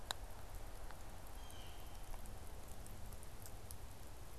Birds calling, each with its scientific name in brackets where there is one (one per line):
Blue Jay (Cyanocitta cristata)